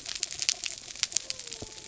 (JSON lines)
{"label": "biophony", "recorder": "SoundTrap 300"}